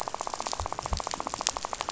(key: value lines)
label: biophony, rattle
recorder: SoundTrap 500